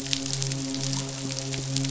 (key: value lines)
label: biophony, midshipman
recorder: SoundTrap 500